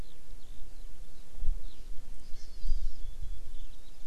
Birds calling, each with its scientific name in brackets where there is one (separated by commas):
Hawaii Amakihi (Chlorodrepanis virens), Eurasian Skylark (Alauda arvensis)